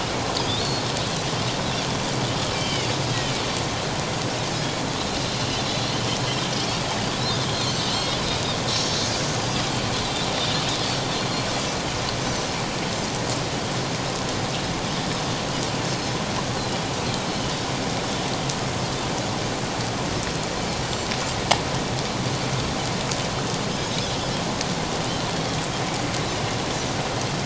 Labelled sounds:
2.5	2.9	Pacific white-sided dolphin, 2.1 to 3.3 kHz
5.7	5.9	Pacific white-sided dolphin, 3.8 to 4.1 kHz
9.4	9.7	Pacific white-sided dolphin, 4.6 to 5.0 kHz

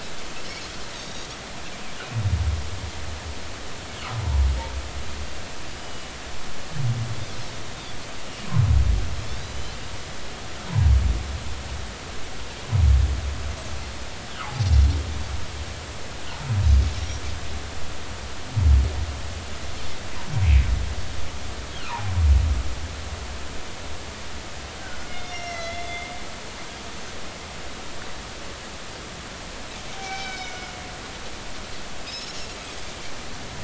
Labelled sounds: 1.0	1.3	Pacific white-sided dolphin, 3.6 to 3.9 kHz
5.8	6.1	Pacific white-sided dolphin, 2.9 to 5.0 kHz
13.7	14.0	humpback whale, 4.1 to 4.3 kHz
21.8	22.1	humpback whale, 0.80 to 1.5 kHz
25.1	26.1	humpback whale, 2.0 to 6.3 kHz
29.9	30.7	humpback whale, 0.80 to 5.5 kHz
32.0	32.4	Pacific white-sided dolphin, 3.7 to 5.5 kHz

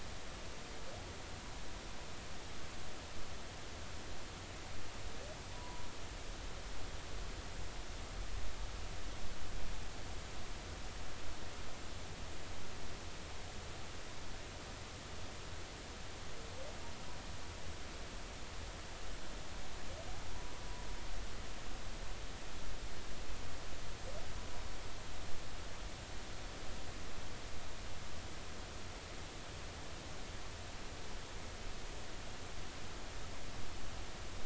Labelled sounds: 5.5	5.9	humpback whale, 0.86 to 1.1 kHz

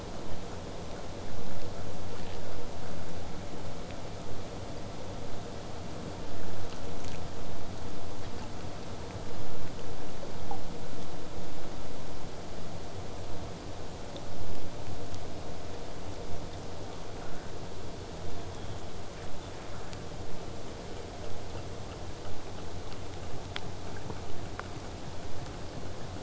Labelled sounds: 18.1	19.6	killer whale, southern resident, whistle, 3.0 to 3.9 kHz
21.2	26.2	vessel noise, 0 to 8.0 kHz

